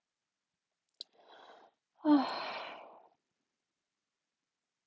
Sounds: Sigh